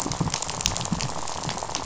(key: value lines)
label: biophony, rattle
recorder: SoundTrap 500